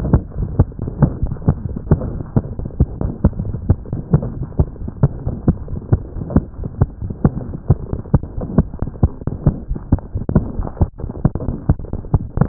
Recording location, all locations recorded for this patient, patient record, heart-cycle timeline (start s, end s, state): aortic valve (AV)
aortic valve (AV)+pulmonary valve (PV)+tricuspid valve (TV)+mitral valve (MV)
#Age: Child
#Sex: Female
#Height: 118.0 cm
#Weight: 17.0 kg
#Pregnancy status: False
#Murmur: Present
#Murmur locations: mitral valve (MV)
#Most audible location: mitral valve (MV)
#Systolic murmur timing: Holosystolic
#Systolic murmur shape: Plateau
#Systolic murmur grading: I/VI
#Systolic murmur pitch: Medium
#Systolic murmur quality: Blowing
#Diastolic murmur timing: nan
#Diastolic murmur shape: nan
#Diastolic murmur grading: nan
#Diastolic murmur pitch: nan
#Diastolic murmur quality: nan
#Outcome: Abnormal
#Campaign: 2015 screening campaign
0.00	5.22	unannotated
5.22	5.36	S1
5.36	5.46	systole
5.46	5.56	S2
5.56	5.70	diastole
5.70	5.79	S1
5.79	5.89	systole
5.89	6.02	S2
6.02	6.14	diastole
6.14	6.24	S1
6.24	6.33	systole
6.33	6.42	S2
6.42	6.57	diastole
6.57	6.67	S1
6.67	6.78	systole
6.78	6.88	S2
6.88	6.99	diastole
6.99	7.10	S1
7.10	7.22	systole
7.22	7.32	S2
7.32	7.47	diastole
7.47	7.57	S1
7.57	7.67	systole
7.67	7.78	S2
7.78	7.91	diastole
7.91	8.03	S1
8.03	8.10	systole
8.10	8.20	S2
8.20	8.35	diastole
8.35	8.44	S1
8.44	8.56	systole
8.56	8.66	S2
8.66	8.79	diastole
8.79	8.88	S1
8.88	9.00	systole
9.00	9.10	S2
9.10	12.48	unannotated